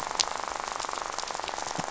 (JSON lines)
{"label": "biophony, rattle", "recorder": "SoundTrap 500"}